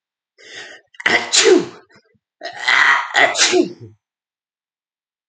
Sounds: Sneeze